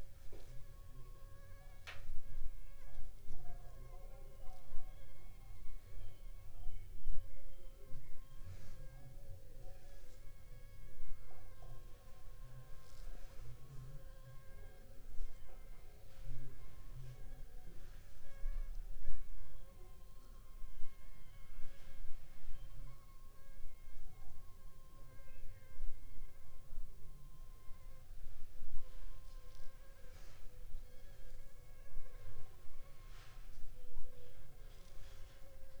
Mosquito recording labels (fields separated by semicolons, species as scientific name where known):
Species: Anopheles funestus s.s.; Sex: female; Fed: unfed; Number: one; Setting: cup